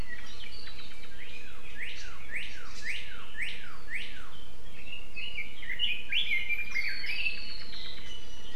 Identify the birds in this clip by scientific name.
Cardinalis cardinalis, Leiothrix lutea, Himatione sanguinea